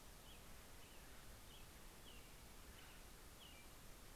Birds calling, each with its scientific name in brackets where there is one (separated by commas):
Acorn Woodpecker (Melanerpes formicivorus), American Robin (Turdus migratorius)